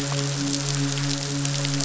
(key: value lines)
label: biophony, midshipman
recorder: SoundTrap 500